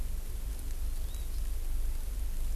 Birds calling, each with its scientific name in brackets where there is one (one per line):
Hawaii Amakihi (Chlorodrepanis virens)